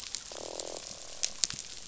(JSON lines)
{"label": "biophony, croak", "recorder": "SoundTrap 500"}